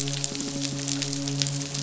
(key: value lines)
label: biophony, midshipman
recorder: SoundTrap 500

label: biophony
recorder: SoundTrap 500